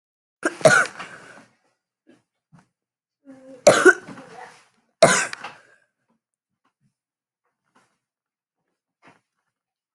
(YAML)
expert_labels:
- quality: good
  cough_type: dry
  dyspnea: false
  wheezing: false
  stridor: false
  choking: false
  congestion: false
  nothing: true
  diagnosis: obstructive lung disease
  severity: mild
age: 20
gender: female
respiratory_condition: false
fever_muscle_pain: true
status: symptomatic